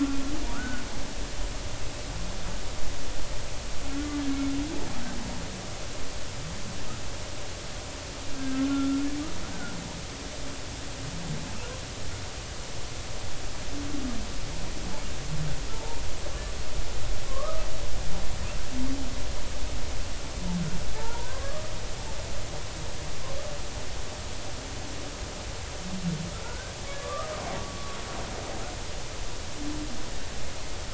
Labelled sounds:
0.5	0.8	humpback whale, 1.2 to 1.6 kHz
8.4	9.0	humpback whale, 1.3 to 1.7 kHz
15.7	16.0	humpback whale, 0.83 to 0.99 kHz
17.3	17.7	humpback whale, 0.99 to 1.3 kHz
21.0	21.7	humpback whale, 0.83 to 1.3 kHz
26.4	27.3	humpback whale, 1.1 to 1.7 kHz
27.6	28.0	humpback whale, 1.1 to 1.2 kHz

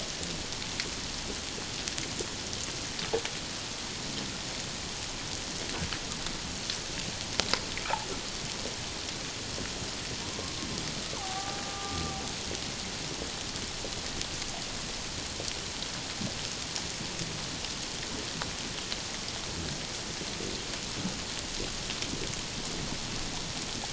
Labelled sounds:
11.1	12.2	killer whale, Bigg's (transient), 0.78 to 1.2 kHz

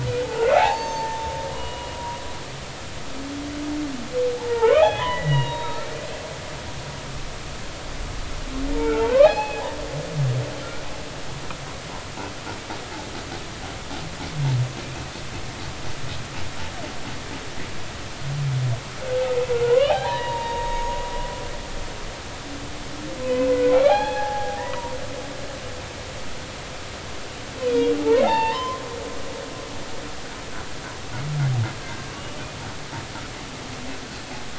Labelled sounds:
0.2	2.2	humpback whale, 0.80 to 6.4 kHz
4.4	5.8	humpback whale, 0.80 to 3.9 kHz
8.8	9.6	humpback whale, 0.80 to 4.4 kHz
14.8	15.1	humpback whale, 2.3 to 2.7 kHz
19.7	21.0	humpback whale, 0.80 to 6.7 kHz
23.2	25.0	humpback whale, 0.80 to 3.5 kHz
27.6	28.8	humpback whale, 0.80 to 4.6 kHz

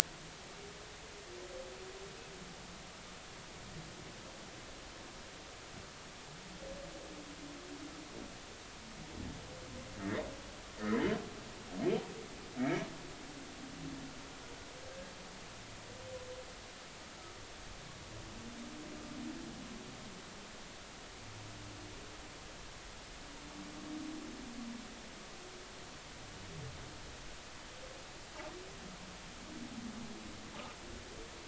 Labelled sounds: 10.0	10.2	humpback whale, 1.6 to 2.1 kHz
12.6	12.8	humpback whale, 2.1 to 2.4 kHz

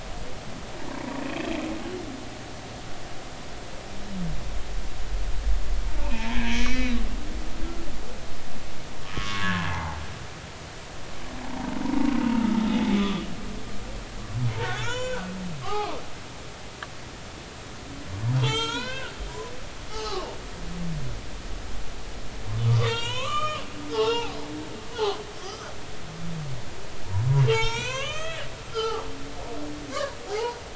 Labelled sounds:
1.2	1.5	humpback whale, 2.4 to 2.7 kHz
6.0	7.0	humpback whale, 0.83 to 4.1 kHz
9.2	10.0	humpback whale, 0.80 to 2.1 kHz
11.5	12.6	humpback whale, 0.80 to 1.4 kHz
13.0	13.3	humpback whale, 1.1 to 3.6 kHz
14.7	15.3	humpback whale, 0.90 to 7.2 kHz
15.6	16.0	humpback whale, 0.80 to 1.3 kHz
18.4	19.1	humpback whale, 0.83 to 7.8 kHz
19.9	20.3	humpback whale, 0.80 to 4.9 kHz
22.7	24.4	humpback whale, 0.80 to 7.7 kHz
24.9	25.7	humpback whale, 0.80 to 4.4 kHz
27.5	29.0	humpback whale, 0.83 to 7.8 kHz
29.9	30.6	humpback whale, 0.80 to 1.3 kHz

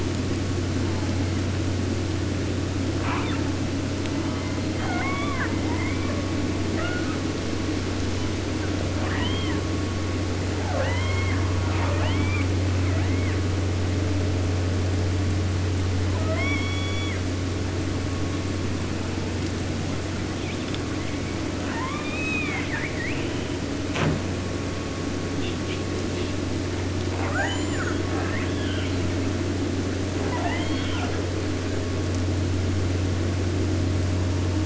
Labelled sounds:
0.7	1.4	killer whale, southern resident, J pod, call S04, 0.43 to 1.5 kHz
2.9	3.6	killer whale, 0.51 to 4.4 kHz
4.1	5.6	killer whale, southern resident, 0.50 to 4.8 kHz
5.6	6.3	killer whale, 0.42 to 4.2 kHz
6.7	7.2	killer whale, 0.50 to 3.2 kHz
8.1	8.8	killer whale, 0.79 to 3.3 kHz
8.9	9.7	killer whale, southern resident, J pod, call S44, 0.50 to 3.7 kHz
10.5	12.5	killer whale, southern resident, J pod, call S44, 0.29 to 5.6 kHz
12.7	13.5	killer whale, 0.46 to 4.5 kHz
16.0	17.3	killer whale, southern resident, J pod, call S44, 0.50 to 7.2 kHz
20.4	23.5	killer whale, southern resident, J pod, call S44, 0.50 to 8.0 kHz
23.9	24.2	killer whale, southern resident, J pod, call S05, 0.05 to 8.0 kHz
25.4	26.4	killer whale, 1.5 to 5.6 kHz
27.1	28.0	killer whale, southern resident, J pod, call S44, 0.50 to 8.0 kHz
28.0	29.3	killer whale, 0.50 to 8.0 kHz
30.2	31.3	killer whale, southern resident, J pod, call S44, 0.42 to 6.0 kHz

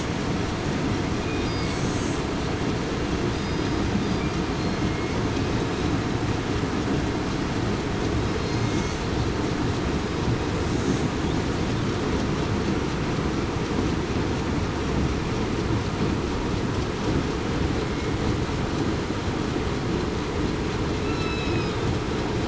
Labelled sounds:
3.3	4.3	killer whale, southern resident, 4.8 to 5.0 kHz
8.4	8.7	killer whale, southern resident, 4.1 to 4.3 kHz
21.0	21.7	killer whale, southern resident, 2.5 to 4.1 kHz

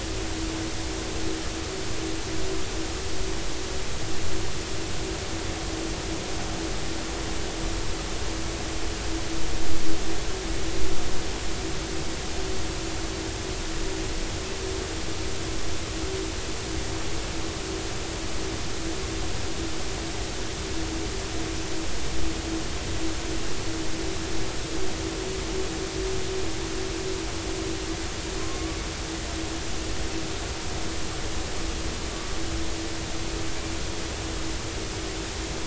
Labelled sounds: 28.4	28.8	killer whale, 1.0 to 1.2 kHz

